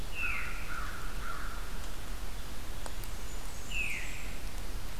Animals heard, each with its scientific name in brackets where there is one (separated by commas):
Blackburnian Warbler (Setophaga fusca), Veery (Catharus fuscescens), American Crow (Corvus brachyrhynchos)